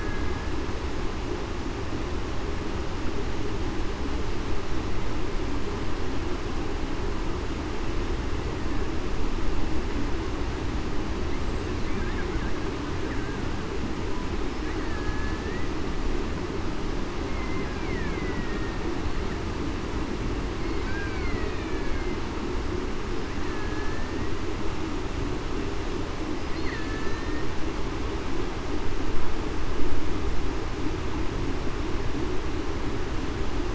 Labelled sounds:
14.8	15.7	killer whale, Bigg's (transient), 1.6 to 2.0 kHz
17.3	17.7	killer whale, Bigg's (transient), 2.0 to 2.2 kHz
18.0	18.8	killer whale, Bigg's (transient), 1.8 to 2.4 kHz
20.8	22.2	killer whale, Bigg's (transient), 1.4 to 2.4 kHz
23.5	24.1	killer whale, Bigg's (transient), 1.6 to 1.8 kHz
26.6	27.4	killer whale, Bigg's (transient), 1.6 to 2.1 kHz

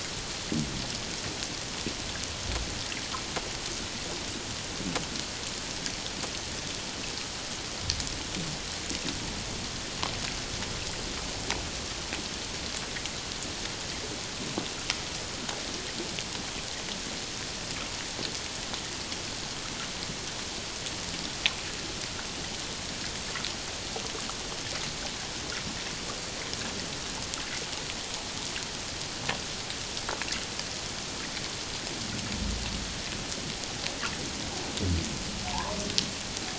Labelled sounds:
35.5	35.8	humpback whale, 0.78 to 1.2 kHz

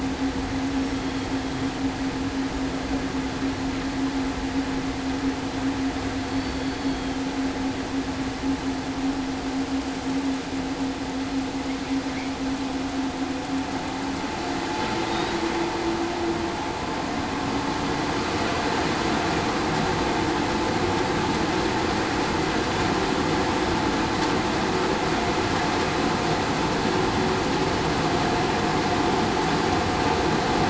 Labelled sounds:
6.2	6.6	killer whale, southern resident, 4.4 to 4.5 kHz

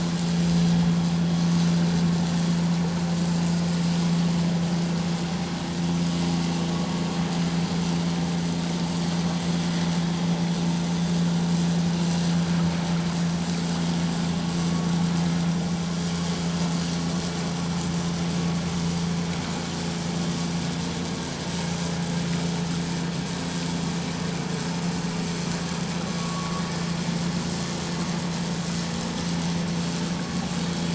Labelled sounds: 26.2	26.6	vessel noise, 1.0 to 1.2 kHz

